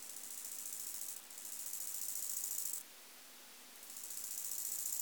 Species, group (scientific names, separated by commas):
Chorthippus biguttulus, Orthoptera